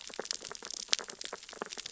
{"label": "biophony, sea urchins (Echinidae)", "recorder": "SoundTrap 600 or HydroMoth"}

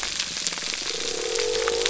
{"label": "biophony", "recorder": "SoundTrap 300"}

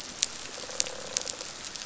{"label": "biophony", "recorder": "SoundTrap 500"}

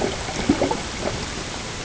{"label": "ambient", "recorder": "HydroMoth"}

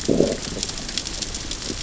{"label": "biophony, growl", "recorder": "SoundTrap 600 or HydroMoth"}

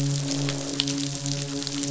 {"label": "biophony, midshipman", "recorder": "SoundTrap 500"}
{"label": "biophony, croak", "recorder": "SoundTrap 500"}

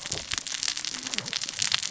{"label": "biophony, cascading saw", "recorder": "SoundTrap 600 or HydroMoth"}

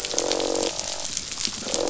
{"label": "biophony, croak", "recorder": "SoundTrap 500"}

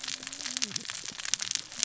{"label": "biophony, cascading saw", "recorder": "SoundTrap 600 or HydroMoth"}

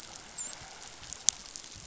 {"label": "biophony, dolphin", "recorder": "SoundTrap 500"}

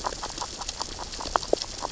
{"label": "biophony, grazing", "recorder": "SoundTrap 600 or HydroMoth"}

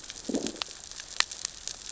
{"label": "biophony, growl", "recorder": "SoundTrap 600 or HydroMoth"}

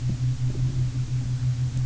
{"label": "anthrophony, boat engine", "recorder": "SoundTrap 300"}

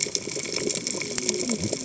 {"label": "biophony, cascading saw", "recorder": "HydroMoth"}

